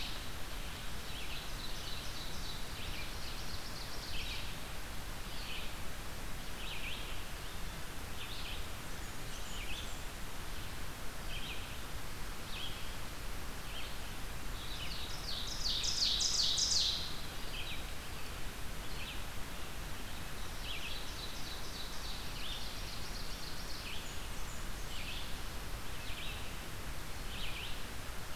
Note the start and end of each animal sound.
0.0s-28.4s: Red-eyed Vireo (Vireo olivaceus)
1.0s-4.5s: Ovenbird (Seiurus aurocapilla)
8.8s-10.1s: Blackburnian Warbler (Setophaga fusca)
14.8s-17.2s: Ovenbird (Seiurus aurocapilla)
20.4s-24.1s: Ovenbird (Seiurus aurocapilla)
23.5s-25.1s: Blackburnian Warbler (Setophaga fusca)

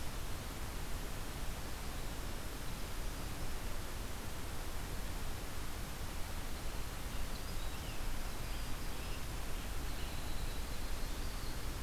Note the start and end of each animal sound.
6.5s-11.8s: Winter Wren (Troglodytes hiemalis)
7.0s-10.1s: Scarlet Tanager (Piranga olivacea)

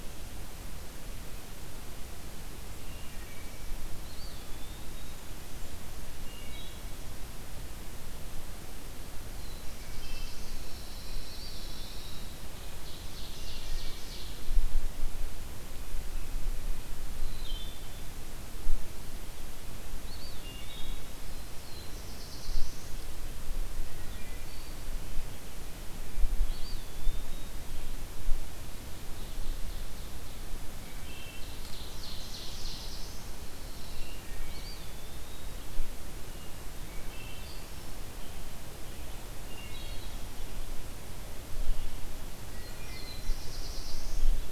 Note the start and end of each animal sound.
2.7s-3.7s: Wood Thrush (Hylocichla mustelina)
3.8s-5.5s: Eastern Wood-Pewee (Contopus virens)
4.9s-6.0s: Blackburnian Warbler (Setophaga fusca)
6.0s-7.0s: Wood Thrush (Hylocichla mustelina)
9.1s-10.9s: Black-throated Blue Warbler (Setophaga caerulescens)
9.7s-10.4s: Wood Thrush (Hylocichla mustelina)
9.8s-12.8s: Pine Warbler (Setophaga pinus)
11.1s-12.5s: Eastern Wood-Pewee (Contopus virens)
12.6s-14.7s: Ovenbird (Seiurus aurocapilla)
13.3s-14.2s: Wood Thrush (Hylocichla mustelina)
17.1s-18.2s: Wood Thrush (Hylocichla mustelina)
19.9s-21.4s: Eastern Wood-Pewee (Contopus virens)
20.2s-21.8s: Wood Thrush (Hylocichla mustelina)
21.1s-23.2s: Black-throated Blue Warbler (Setophaga caerulescens)
23.8s-24.8s: Wood Thrush (Hylocichla mustelina)
26.2s-27.7s: Eastern Wood-Pewee (Contopus virens)
28.8s-30.6s: Ovenbird (Seiurus aurocapilla)
30.7s-31.5s: Wood Thrush (Hylocichla mustelina)
31.3s-33.5s: Black-throated Blue Warbler (Setophaga caerulescens)
33.2s-34.2s: Pine Warbler (Setophaga pinus)
33.8s-34.9s: Wood Thrush (Hylocichla mustelina)
34.4s-35.9s: Eastern Wood-Pewee (Contopus virens)
36.8s-37.8s: Wood Thrush (Hylocichla mustelina)
39.3s-40.4s: Wood Thrush (Hylocichla mustelina)
42.4s-44.5s: Black-throated Blue Warbler (Setophaga caerulescens)
42.4s-43.4s: Wood Thrush (Hylocichla mustelina)

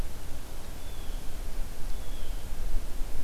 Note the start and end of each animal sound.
0.7s-1.2s: Blue Jay (Cyanocitta cristata)
1.9s-2.5s: Blue Jay (Cyanocitta cristata)

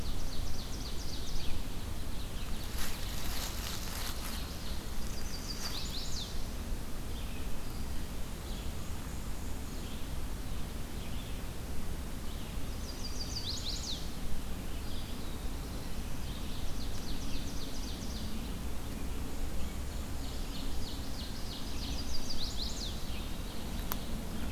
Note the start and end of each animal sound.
0.0s-4.8s: Ovenbird (Seiurus aurocapilla)
0.0s-24.5s: Red-eyed Vireo (Vireo olivaceus)
4.9s-6.3s: Chestnut-sided Warbler (Setophaga pensylvanica)
8.3s-10.0s: Black-and-white Warbler (Mniotilta varia)
12.6s-14.1s: Chestnut-sided Warbler (Setophaga pensylvanica)
16.4s-18.5s: Ovenbird (Seiurus aurocapilla)
19.1s-20.9s: Black-and-white Warbler (Mniotilta varia)
19.8s-22.0s: Ovenbird (Seiurus aurocapilla)
21.6s-22.9s: Chestnut-sided Warbler (Setophaga pensylvanica)

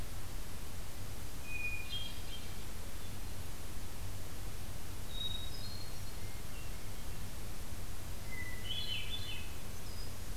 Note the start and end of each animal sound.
1.5s-2.7s: Hermit Thrush (Catharus guttatus)
5.1s-7.3s: Hermit Thrush (Catharus guttatus)
8.3s-9.6s: Hermit Thrush (Catharus guttatus)
9.4s-10.4s: Black-throated Green Warbler (Setophaga virens)

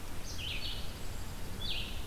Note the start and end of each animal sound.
0.0s-2.1s: Red-eyed Vireo (Vireo olivaceus)

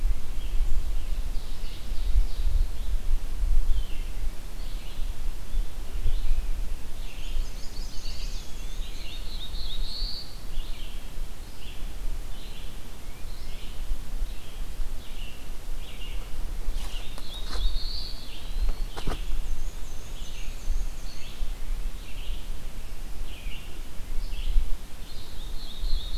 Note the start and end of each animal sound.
0.0s-26.2s: Red-eyed Vireo (Vireo olivaceus)
0.8s-2.5s: Ovenbird (Seiurus aurocapilla)
6.6s-9.3s: Chestnut-sided Warbler (Setophaga pensylvanica)
7.9s-9.1s: Eastern Wood-Pewee (Contopus virens)
8.6s-10.5s: Black-throated Blue Warbler (Setophaga caerulescens)
16.5s-18.4s: Black-throated Blue Warbler (Setophaga caerulescens)
17.9s-19.1s: Eastern Wood-Pewee (Contopus virens)
19.2s-21.7s: Black-and-white Warbler (Mniotilta varia)
24.9s-26.2s: Black-throated Blue Warbler (Setophaga caerulescens)

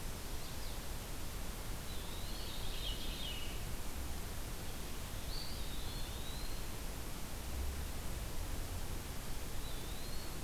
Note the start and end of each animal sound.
1.7s-2.6s: Eastern Wood-Pewee (Contopus virens)
2.4s-3.6s: Veery (Catharus fuscescens)
5.2s-6.8s: Eastern Wood-Pewee (Contopus virens)
9.4s-10.4s: Eastern Wood-Pewee (Contopus virens)

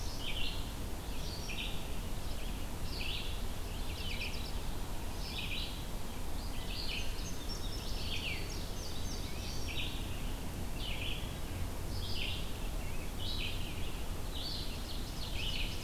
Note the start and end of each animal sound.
0.0s-15.8s: Red-eyed Vireo (Vireo olivaceus)
3.5s-4.7s: Mourning Warbler (Geothlypis philadelphia)
6.7s-9.7s: Indigo Bunting (Passerina cyanea)
14.3s-15.8s: Ovenbird (Seiurus aurocapilla)

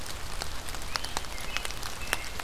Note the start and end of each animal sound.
0.8s-1.2s: Great Crested Flycatcher (Myiarchus crinitus)
1.2s-2.4s: American Robin (Turdus migratorius)

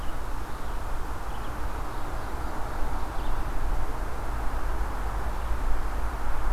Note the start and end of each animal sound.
0.8s-3.6s: Red-eyed Vireo (Vireo olivaceus)
1.8s-3.5s: Ovenbird (Seiurus aurocapilla)

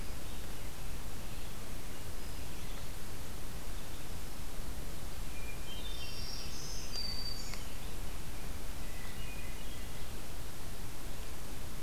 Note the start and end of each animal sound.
0.0s-2.9s: American Robin (Turdus migratorius)
5.3s-6.6s: Hermit Thrush (Catharus guttatus)
5.7s-7.7s: Black-throated Green Warbler (Setophaga virens)
6.2s-8.1s: American Robin (Turdus migratorius)
8.9s-10.2s: Hermit Thrush (Catharus guttatus)

